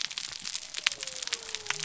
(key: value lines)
label: biophony
recorder: SoundTrap 300